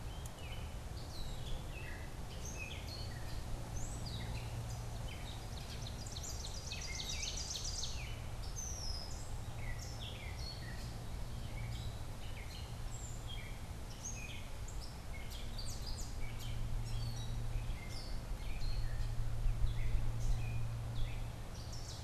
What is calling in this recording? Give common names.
Gray Catbird, Ovenbird